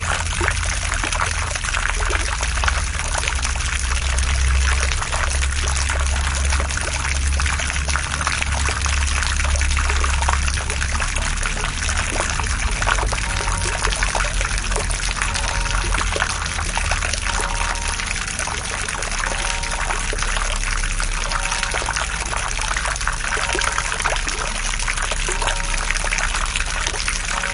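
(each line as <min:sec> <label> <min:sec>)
0:00.0 Water is dropping from a height in a fountain. 0:27.5
0:13.4 A bell rings in the distance while water drops from a fountain. 0:27.5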